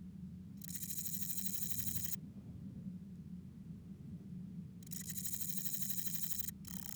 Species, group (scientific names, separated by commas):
Parnassiana parnassica, Orthoptera